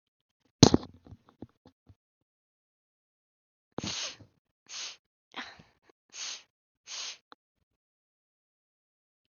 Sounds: Sniff